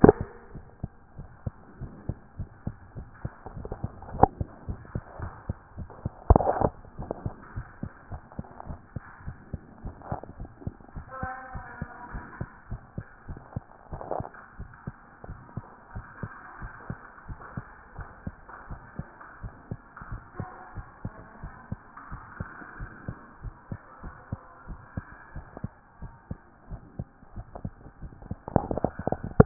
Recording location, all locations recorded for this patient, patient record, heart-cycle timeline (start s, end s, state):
tricuspid valve (TV)
aortic valve (AV)+pulmonary valve (PV)+tricuspid valve (TV)+mitral valve (MV)
#Age: Child
#Sex: Male
#Height: 123.0 cm
#Weight: 20.5 kg
#Pregnancy status: False
#Murmur: Absent
#Murmur locations: nan
#Most audible location: nan
#Systolic murmur timing: nan
#Systolic murmur shape: nan
#Systolic murmur grading: nan
#Systolic murmur pitch: nan
#Systolic murmur quality: nan
#Diastolic murmur timing: nan
#Diastolic murmur shape: nan
#Diastolic murmur grading: nan
#Diastolic murmur pitch: nan
#Diastolic murmur quality: nan
#Outcome: Abnormal
#Campaign: 2014 screening campaign
0.00	14.58	unannotated
14.58	14.70	S1
14.70	14.86	systole
14.86	14.96	S2
14.96	15.28	diastole
15.28	15.40	S1
15.40	15.56	systole
15.56	15.64	S2
15.64	15.94	diastole
15.94	16.06	S1
16.06	16.22	systole
16.22	16.30	S2
16.30	16.60	diastole
16.60	16.72	S1
16.72	16.88	systole
16.88	16.98	S2
16.98	17.28	diastole
17.28	17.38	S1
17.38	17.56	systole
17.56	17.64	S2
17.64	17.96	diastole
17.96	18.08	S1
18.08	18.26	systole
18.26	18.34	S2
18.34	18.70	diastole
18.70	18.80	S1
18.80	18.98	systole
18.98	19.06	S2
19.06	19.42	diastole
19.42	19.54	S1
19.54	19.70	systole
19.70	19.78	S2
19.78	20.10	diastole
20.10	20.22	S1
20.22	20.38	systole
20.38	20.48	S2
20.48	20.76	diastole
20.76	20.86	S1
20.86	21.04	systole
21.04	21.12	S2
21.12	21.42	diastole
21.42	21.54	S1
21.54	21.70	systole
21.70	21.80	S2
21.80	22.10	diastole
22.10	22.22	S1
22.22	22.38	systole
22.38	22.48	S2
22.48	22.80	diastole
22.80	22.90	S1
22.90	23.06	systole
23.06	23.16	S2
23.16	23.43	diastole
23.43	23.54	S1
23.54	23.70	systole
23.70	23.80	S2
23.80	24.04	diastole
24.04	24.14	S1
24.14	24.30	systole
24.30	24.40	S2
24.40	24.68	diastole
24.68	24.80	S1
24.80	24.96	systole
24.96	25.04	S2
25.04	25.34	diastole
25.34	25.46	S1
25.46	25.62	systole
25.62	25.72	S2
25.72	26.02	diastole
26.02	26.12	S1
26.12	26.30	systole
26.30	26.38	S2
26.38	26.70	diastole
26.70	26.82	S1
26.82	26.98	systole
26.98	27.06	S2
27.06	27.36	diastole
27.36	29.46	unannotated